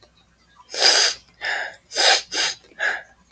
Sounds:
Sniff